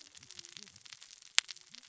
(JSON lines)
{"label": "biophony, cascading saw", "recorder": "SoundTrap 600 or HydroMoth"}